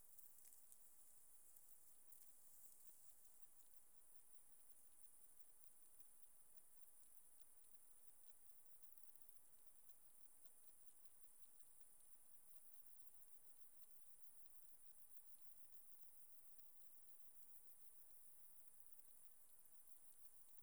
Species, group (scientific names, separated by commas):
Tessellana tessellata, Orthoptera